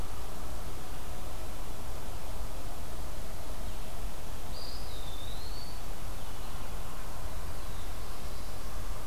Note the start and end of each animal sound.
4.4s-5.8s: Eastern Wood-Pewee (Contopus virens)
7.4s-9.1s: Black-throated Blue Warbler (Setophaga caerulescens)

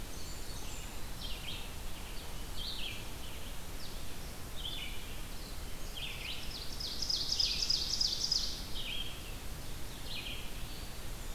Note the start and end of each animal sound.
0.0s-1.0s: Blackburnian Warbler (Setophaga fusca)
0.1s-11.3s: Red-eyed Vireo (Vireo olivaceus)
0.4s-11.3s: Blue-headed Vireo (Vireo solitarius)
6.1s-8.8s: Ovenbird (Seiurus aurocapilla)
10.6s-11.3s: Eastern Wood-Pewee (Contopus virens)

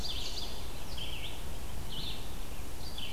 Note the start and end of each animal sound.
0.0s-0.6s: Ovenbird (Seiurus aurocapilla)
0.7s-3.1s: Red-eyed Vireo (Vireo olivaceus)

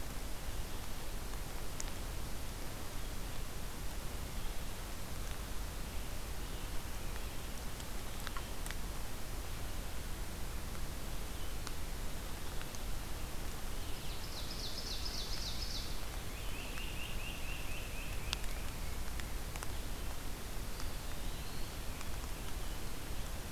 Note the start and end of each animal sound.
13.9s-16.2s: Ovenbird (Seiurus aurocapilla)
15.9s-19.7s: Great Crested Flycatcher (Myiarchus crinitus)
20.3s-22.3s: Eastern Wood-Pewee (Contopus virens)

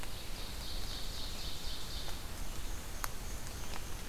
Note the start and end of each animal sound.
0.0s-2.2s: Ovenbird (Seiurus aurocapilla)
2.3s-4.1s: Black-and-white Warbler (Mniotilta varia)

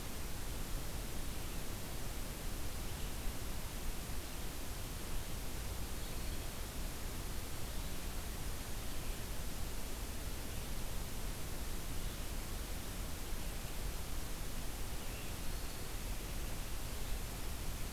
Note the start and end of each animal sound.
15.3s-16.1s: Black-throated Green Warbler (Setophaga virens)

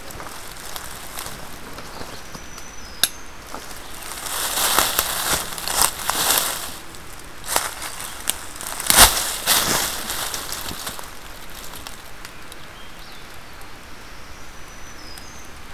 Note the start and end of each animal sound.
2.0s-3.7s: Black-throated Green Warbler (Setophaga virens)
14.2s-15.7s: Black-throated Green Warbler (Setophaga virens)

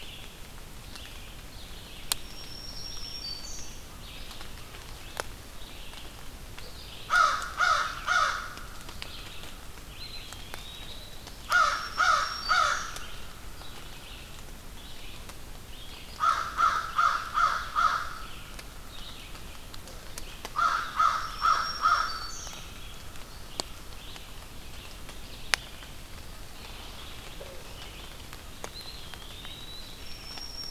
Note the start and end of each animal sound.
0.0s-11.8s: Red-eyed Vireo (Vireo olivaceus)
2.0s-4.0s: Black-throated Green Warbler (Setophaga virens)
6.9s-8.4s: American Crow (Corvus brachyrhynchos)
9.8s-11.4s: Eastern Wood-Pewee (Contopus virens)
11.3s-12.9s: American Crow (Corvus brachyrhynchos)
11.3s-13.1s: Black-throated Green Warbler (Setophaga virens)
12.9s-30.7s: Red-eyed Vireo (Vireo olivaceus)
16.1s-18.5s: American Crow (Corvus brachyrhynchos)
20.5s-22.3s: American Crow (Corvus brachyrhynchos)
20.9s-22.9s: Black-throated Green Warbler (Setophaga virens)
28.7s-29.9s: Eastern Wood-Pewee (Contopus virens)
29.9s-30.7s: Black-throated Green Warbler (Setophaga virens)

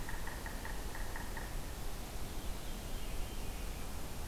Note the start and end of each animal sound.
0.0s-1.5s: Yellow-bellied Sapsucker (Sphyrapicus varius)
2.3s-3.9s: Veery (Catharus fuscescens)

